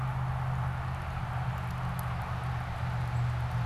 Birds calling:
Black-capped Chickadee (Poecile atricapillus)

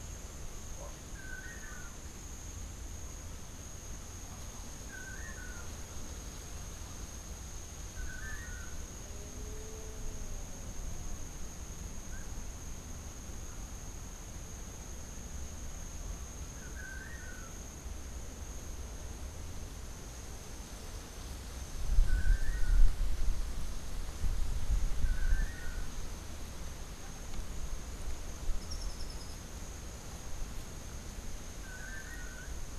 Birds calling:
Melodious Blackbird (Dives dives)
Long-tailed Manakin (Chiroxiphia linearis)
Rufous-tailed Hummingbird (Amazilia tzacatl)

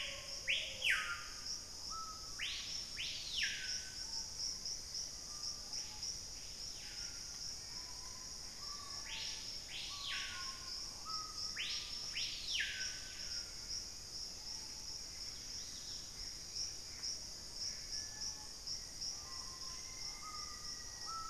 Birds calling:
Black-faced Antthrush (Formicarius analis)
Gray Antbird (Cercomacra cinerascens)
Hauxwell's Thrush (Turdus hauxwelli)
Plumbeous Pigeon (Patagioenas plumbea)
Dusky-capped Greenlet (Pachysylvia hypoxantha)
unidentified bird
Screaming Piha (Lipaugus vociferans)

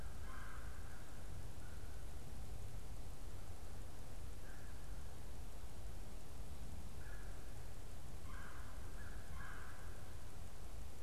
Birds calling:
Red-bellied Woodpecker (Melanerpes carolinus)
American Crow (Corvus brachyrhynchos)

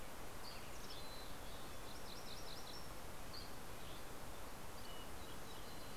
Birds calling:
White-crowned Sparrow (Zonotrichia leucophrys)
Mountain Chickadee (Poecile gambeli)
MacGillivray's Warbler (Geothlypis tolmiei)
Dusky Flycatcher (Empidonax oberholseri)

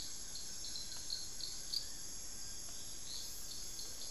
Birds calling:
Hauxwell's Thrush (Turdus hauxwelli)
Blue-crowned Trogon (Trogon curucui)
Fasciated Antshrike (Cymbilaimus lineatus)

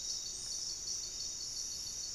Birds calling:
Buff-breasted Wren (Cantorchilus leucotis)
Gray-fronted Dove (Leptotila rufaxilla)
Paradise Tanager (Tangara chilensis)

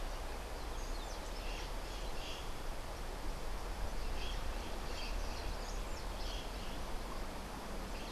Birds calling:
White-crowned Parrot (Pionus senilis)

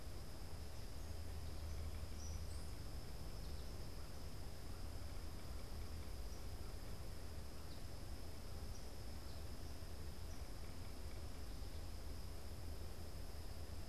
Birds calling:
Eastern Kingbird (Tyrannus tyrannus)

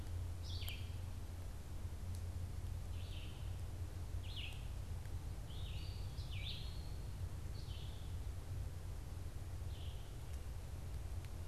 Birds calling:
Eastern Wood-Pewee (Contopus virens)
Red-eyed Vireo (Vireo olivaceus)

